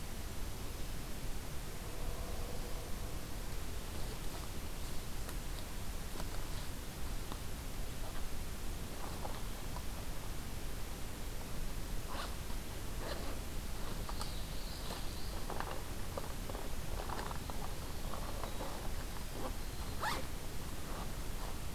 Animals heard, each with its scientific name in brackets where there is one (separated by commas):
Common Yellowthroat (Geothlypis trichas), Winter Wren (Troglodytes hiemalis)